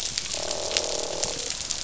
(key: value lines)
label: biophony, croak
recorder: SoundTrap 500